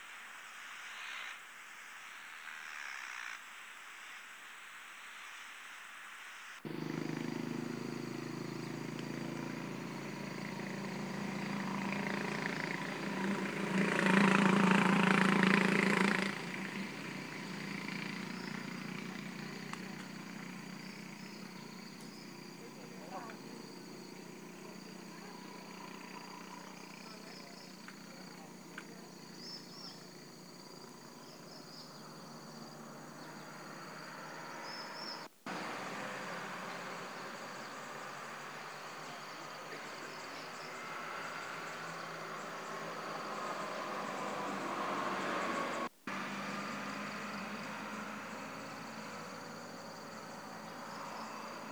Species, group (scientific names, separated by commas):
Teleogryllus mitratus, Orthoptera